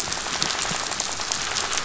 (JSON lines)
{"label": "biophony, rattle", "recorder": "SoundTrap 500"}